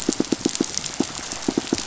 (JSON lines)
{"label": "biophony, pulse", "recorder": "SoundTrap 500"}